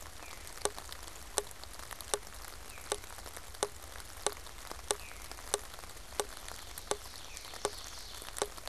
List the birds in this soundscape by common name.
Veery, Ovenbird